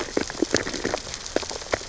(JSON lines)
{"label": "biophony, sea urchins (Echinidae)", "recorder": "SoundTrap 600 or HydroMoth"}